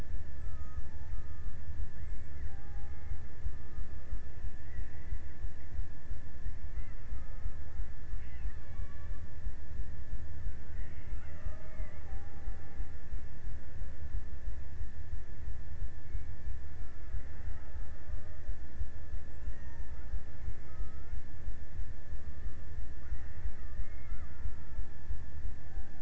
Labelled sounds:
0.3	1.7	killer whale, Bigg's (transient), 0.57 to 2.0 kHz
2.2	5.8	killer whale, Bigg's (transient), 0.58 to 2.8 kHz
6.4	9.7	killer whale, Bigg's (transient), 0.34 to 3.9 kHz
10.7	13.1	killer whale, Bigg's (transient), 0.48 to 3.0 kHz
17.0	18.9	killer whale, Bigg's (transient), 0.33 to 2.4 kHz
19.4	21.6	killer whale, Bigg's (transient), 0.46 to 2.2 kHz
23.6	25.6	killer whale, Bigg's (transient), 0.37 to 2.7 kHz

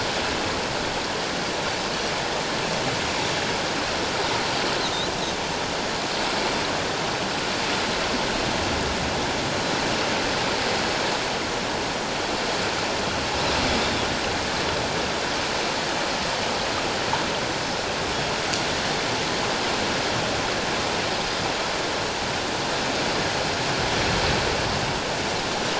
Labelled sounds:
13.8	14.1	Pacific white-sided dolphin, 3.3 to 3.7 kHz
21.2	21.5	Pacific white-sided dolphin, 4.8 to 5.1 kHz

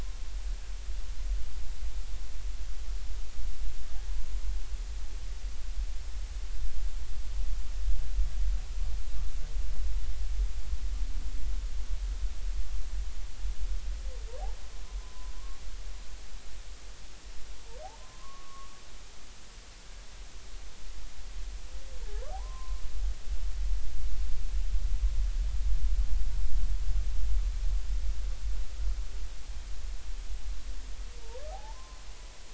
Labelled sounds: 15.0	15.3	humpback whale, 0.96 to 1.1 kHz
18.0	18.7	humpback whale, 0.99 to 1.2 kHz
22.3	22.8	humpback whale, 0.80 to 1.1 kHz
31.2	32.0	humpback whale, 0.80 to 1.2 kHz

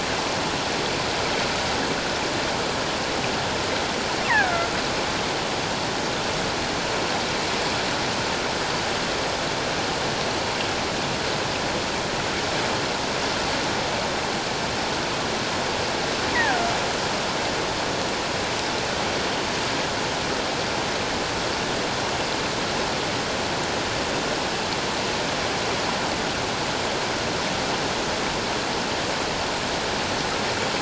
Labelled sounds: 4.2	4.7	killer whale, offshore, call OFF17, 0.78 to 2.3 kHz
16.3	16.7	killer whale, offshore, call OFF17, 1.4 to 2.1 kHz

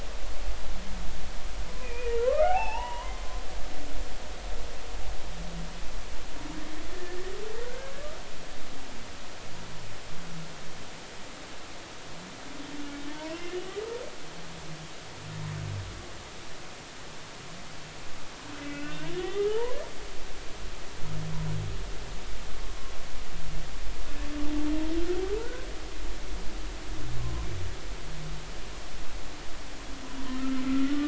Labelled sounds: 2.0	3.2	humpback whale, 0.80 to 3.0 kHz
6.9	7.2	humpback whale, 1.7 to 1.9 kHz
7.6	7.9	humpback whale, 1.3 to 1.7 kHz
13.1	13.4	humpback whale, 0.86 to 1.1 kHz
18.6	19.8	humpback whale, 0.83 to 3.7 kHz
25.4	25.7	humpback whale, 1.3 to 1.7 kHz
30.3	31.0	humpback whale, 1.2 to 1.5 kHz

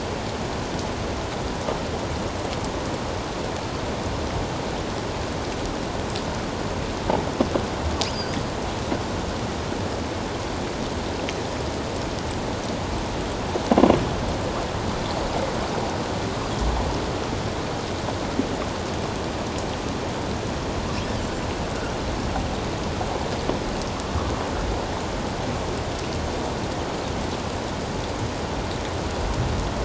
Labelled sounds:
8.1	8.4	killer whale, offshore, 4.4 to 5.0 kHz

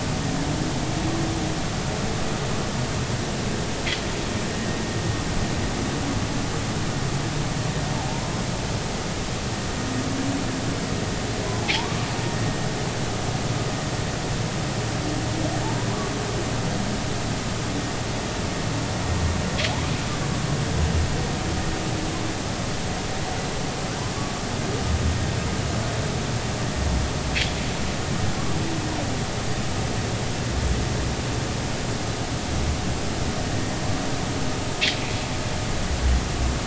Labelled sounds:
11.6	11.9	humpback whale, 0.80 to 1.0 kHz

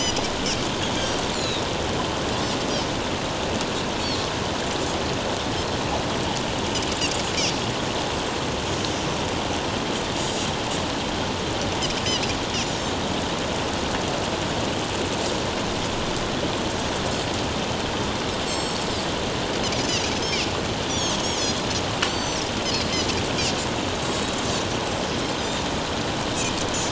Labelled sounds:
0.0	0.3	Pacific white-sided dolphin, 4.8 to 5.1 kHz
1.3	1.6	Pacific white-sided dolphin, 3.6 to 4.5 kHz
18.5	18.8	Pacific white-sided dolphin, 4.2 to 7.7 kHz
20.1	20.4	Pacific white-sided dolphin, 4.9 to 5.6 kHz
20.9	22.4	Pacific white-sided dolphin, 4.1 to 7.7 kHz

